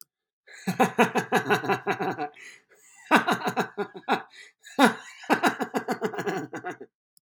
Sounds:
Laughter